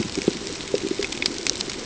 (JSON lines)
{"label": "ambient", "recorder": "HydroMoth"}